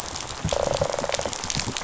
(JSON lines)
{"label": "biophony", "recorder": "SoundTrap 500"}